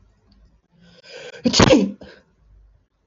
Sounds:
Sneeze